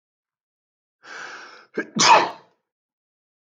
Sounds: Sneeze